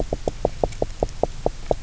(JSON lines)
{"label": "biophony, knock", "recorder": "SoundTrap 300"}